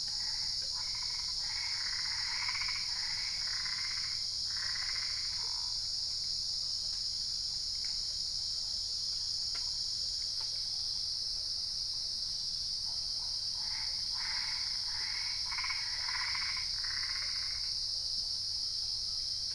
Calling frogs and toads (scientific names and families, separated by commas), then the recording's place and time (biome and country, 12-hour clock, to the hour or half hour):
Boana albopunctata (Hylidae)
Cerrado, Brazil, 5am